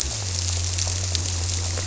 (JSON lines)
{"label": "biophony", "recorder": "SoundTrap 300"}